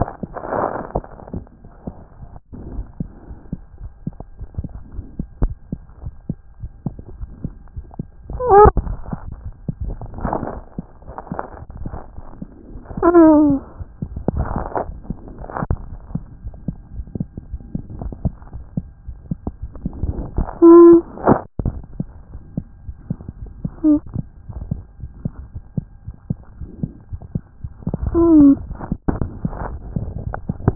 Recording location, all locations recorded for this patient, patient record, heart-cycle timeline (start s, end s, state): aortic valve (AV)
aortic valve (AV)+mitral valve (MV)
#Age: Child
#Sex: Male
#Height: 85.0 cm
#Weight: 12.1 kg
#Pregnancy status: False
#Murmur: Absent
#Murmur locations: nan
#Most audible location: nan
#Systolic murmur timing: nan
#Systolic murmur shape: nan
#Systolic murmur grading: nan
#Systolic murmur pitch: nan
#Systolic murmur quality: nan
#Diastolic murmur timing: nan
#Diastolic murmur shape: nan
#Diastolic murmur grading: nan
#Diastolic murmur pitch: nan
#Diastolic murmur quality: nan
#Outcome: Abnormal
#Campaign: 2014 screening campaign
0.00	24.82	unannotated
24.82	25.01	diastole
25.01	25.12	S1
25.12	25.24	systole
25.24	25.33	S2
25.33	25.54	diastole
25.54	25.65	S1
25.65	25.78	systole
25.78	25.86	S2
25.86	26.06	diastole
26.06	26.17	S1
26.17	26.30	systole
26.30	26.39	S2
26.39	26.60	diastole
26.60	26.70	S1
26.70	26.83	systole
26.83	26.92	S2
26.92	27.12	diastole
27.12	27.22	S1
27.22	27.34	systole
27.34	27.43	S2
27.43	27.64	diastole
27.64	30.75	unannotated